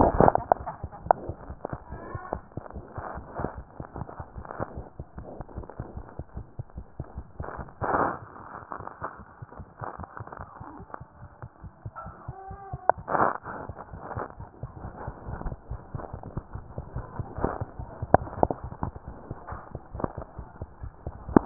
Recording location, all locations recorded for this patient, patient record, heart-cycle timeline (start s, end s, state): mitral valve (MV)
mitral valve (MV)
#Age: Infant
#Sex: Male
#Height: nan
#Weight: nan
#Pregnancy status: False
#Murmur: Absent
#Murmur locations: nan
#Most audible location: nan
#Systolic murmur timing: nan
#Systolic murmur shape: nan
#Systolic murmur grading: nan
#Systolic murmur pitch: nan
#Systolic murmur quality: nan
#Diastolic murmur timing: nan
#Diastolic murmur shape: nan
#Diastolic murmur grading: nan
#Diastolic murmur pitch: nan
#Diastolic murmur quality: nan
#Outcome: Normal
#Campaign: 2015 screening campaign
0.00	4.97	unannotated
4.97	5.06	S1
5.06	5.16	systole
5.16	5.23	S2
5.23	5.38	diastole
5.38	5.44	S1
5.44	5.56	S2
5.56	5.63	S2
5.63	5.78	diastole
5.78	5.86	S1
5.86	5.96	systole
5.96	6.04	S2
6.04	6.18	diastole
6.18	6.23	S1
6.23	6.35	systole
6.35	6.44	S2
6.44	6.57	diastole
6.57	6.63	S1
6.63	6.75	systole
6.75	6.83	S2
6.83	6.98	diastole
6.98	7.05	S1
7.05	7.16	systole
7.16	7.24	S2
7.24	7.38	diastole
7.38	7.44	S1
7.44	7.58	systole
7.58	7.64	S2
7.64	7.80	diastole
7.80	7.86	S1
7.86	9.40	unannotated
9.40	9.47	S1
9.47	9.56	systole
9.56	9.66	S2
9.66	9.79	diastole
9.79	9.85	S1
9.85	21.46	unannotated